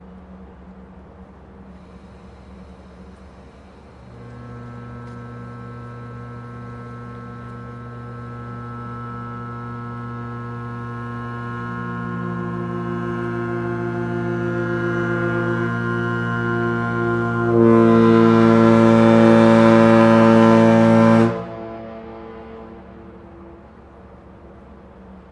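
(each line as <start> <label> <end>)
1.9 A ferry horn rises gradually in volume, followed by a deep, resonant blast that ends suddenly with a faint echo. 23.4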